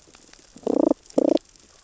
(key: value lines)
label: biophony, damselfish
recorder: SoundTrap 600 or HydroMoth